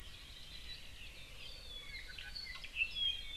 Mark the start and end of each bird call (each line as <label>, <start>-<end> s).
Hawaii Creeper (Loxops mana), 0.1-1.1 s
Apapane (Himatione sanguinea), 1.4-3.4 s